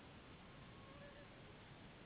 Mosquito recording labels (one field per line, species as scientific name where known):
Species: Anopheles gambiae s.s.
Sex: female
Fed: unfed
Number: one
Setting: insect culture